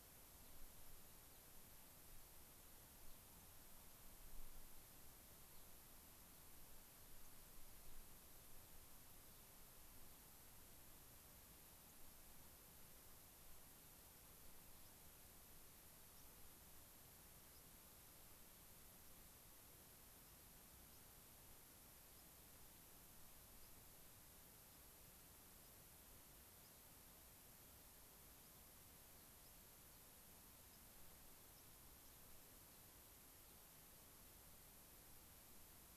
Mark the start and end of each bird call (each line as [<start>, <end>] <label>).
[11.76, 11.96] White-crowned Sparrow (Zonotrichia leucophrys)
[16.06, 16.36] White-crowned Sparrow (Zonotrichia leucophrys)
[17.46, 17.66] White-crowned Sparrow (Zonotrichia leucophrys)
[22.06, 22.36] White-crowned Sparrow (Zonotrichia leucophrys)
[23.46, 23.76] White-crowned Sparrow (Zonotrichia leucophrys)
[26.56, 26.86] White-crowned Sparrow (Zonotrichia leucophrys)
[29.26, 29.86] White-crowned Sparrow (Zonotrichia leucophrys)
[30.66, 30.96] White-crowned Sparrow (Zonotrichia leucophrys)
[31.46, 32.16] unidentified bird